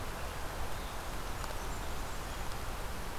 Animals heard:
Blackburnian Warbler (Setophaga fusca)

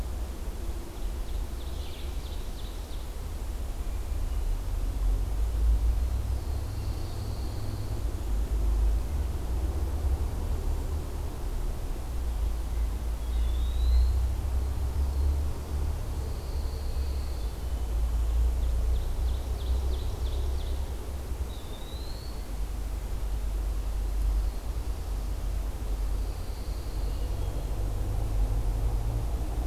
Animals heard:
Black-throated Blue Warbler (Setophaga caerulescens), Eastern Wood-Pewee (Contopus virens), Red-eyed Vireo (Vireo olivaceus), Pine Warbler (Setophaga pinus), Ovenbird (Seiurus aurocapilla), Red-breasted Nuthatch (Sitta canadensis)

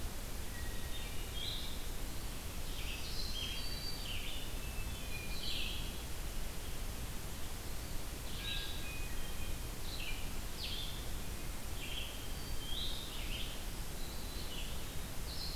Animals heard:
Hermit Thrush (Catharus guttatus), Black-throated Green Warbler (Setophaga virens), Blue-headed Vireo (Vireo solitarius)

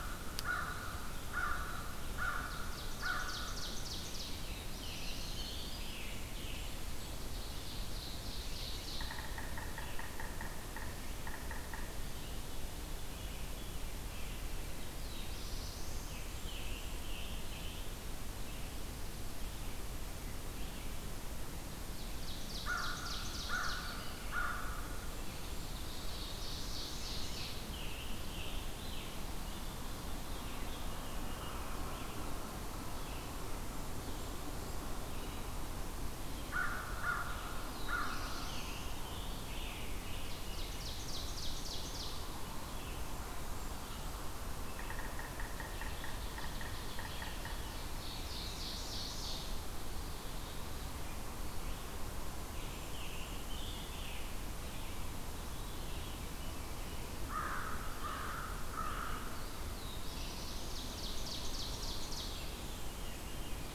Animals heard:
Eastern Wood-Pewee (Contopus virens), Veery (Catharus fuscescens), Ovenbird (Seiurus aurocapilla), American Robin (Turdus migratorius), American Crow (Corvus brachyrhynchos), Yellow-bellied Sapsucker (Sphyrapicus varius), Yellow-rumped Warbler (Setophaga coronata), Black-throated Blue Warbler (Setophaga caerulescens), Blackburnian Warbler (Setophaga fusca), Red-eyed Vireo (Vireo olivaceus), Scarlet Tanager (Piranga olivacea)

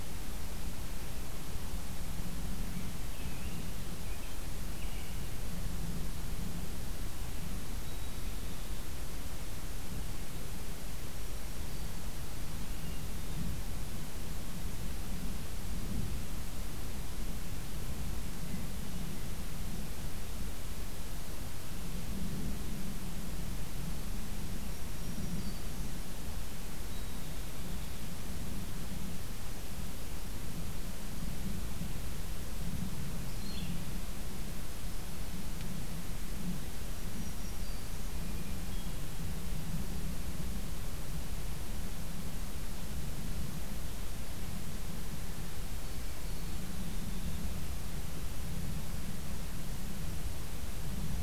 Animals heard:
Black-throated Green Warbler (Setophaga virens), American Robin (Turdus migratorius), Red-eyed Vireo (Vireo olivaceus)

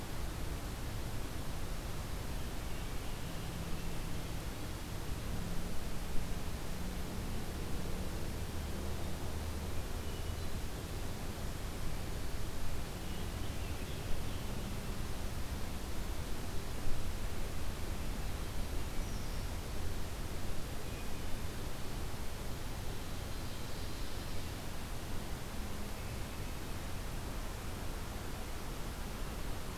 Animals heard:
Hermit Thrush (Catharus guttatus), Scarlet Tanager (Piranga olivacea), Ovenbird (Seiurus aurocapilla), Brown Creeper (Certhia americana)

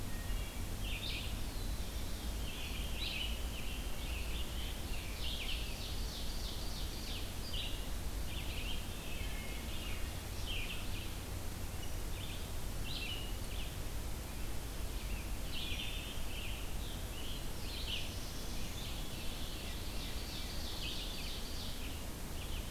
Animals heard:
Red-eyed Vireo (Vireo olivaceus), Black-throated Blue Warbler (Setophaga caerulescens), Veery (Catharus fuscescens), Wood Thrush (Hylocichla mustelina), Scarlet Tanager (Piranga olivacea), Ovenbird (Seiurus aurocapilla)

